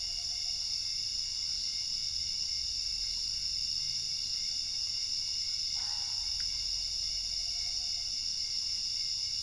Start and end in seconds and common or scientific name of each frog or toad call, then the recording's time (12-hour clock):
5.3	6.6	Boana albopunctata
12:30am